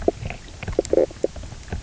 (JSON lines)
{"label": "biophony, knock croak", "recorder": "SoundTrap 300"}